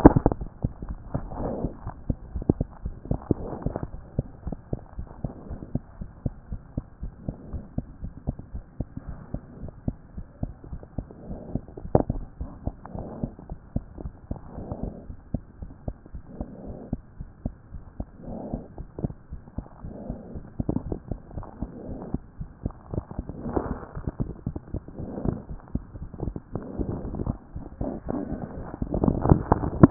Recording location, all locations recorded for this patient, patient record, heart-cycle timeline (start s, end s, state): mitral valve (MV)
aortic valve (AV)+pulmonary valve (PV)+tricuspid valve (TV)+mitral valve (MV)
#Age: Child
#Sex: Male
#Height: 92.0 cm
#Weight: 14.9 kg
#Pregnancy status: False
#Murmur: Absent
#Murmur locations: nan
#Most audible location: nan
#Systolic murmur timing: nan
#Systolic murmur shape: nan
#Systolic murmur grading: nan
#Systolic murmur pitch: nan
#Systolic murmur quality: nan
#Diastolic murmur timing: nan
#Diastolic murmur shape: nan
#Diastolic murmur grading: nan
#Diastolic murmur pitch: nan
#Diastolic murmur quality: nan
#Outcome: Normal
#Campaign: 2014 screening campaign
0.00	4.96	unannotated
4.96	5.08	S1
5.08	5.22	systole
5.22	5.32	S2
5.32	5.48	diastole
5.48	5.60	S1
5.60	5.74	systole
5.74	5.82	S2
5.82	6.00	diastole
6.00	6.10	S1
6.10	6.24	systole
6.24	6.34	S2
6.34	6.50	diastole
6.50	6.60	S1
6.60	6.76	systole
6.76	6.84	S2
6.84	7.02	diastole
7.02	7.12	S1
7.12	7.26	systole
7.26	7.36	S2
7.36	7.52	diastole
7.52	7.64	S1
7.64	7.76	systole
7.76	7.86	S2
7.86	8.02	diastole
8.02	8.12	S1
8.12	8.26	systole
8.26	8.36	S2
8.36	8.54	diastole
8.54	8.64	S1
8.64	8.78	systole
8.78	8.88	S2
8.88	9.06	diastole
9.06	9.18	S1
9.18	9.32	systole
9.32	9.42	S2
9.42	9.60	diastole
9.60	9.72	S1
9.72	9.86	systole
9.86	9.96	S2
9.96	10.16	diastole
10.16	10.26	S1
10.26	10.42	systole
10.42	10.52	S2
10.52	10.72	diastole
10.72	10.82	S1
10.82	10.98	systole
10.98	11.06	S2
11.06	11.30	diastole
11.30	11.38	S1
11.38	11.52	systole
11.52	11.60	S2
11.60	11.84	diastole
11.84	29.90	unannotated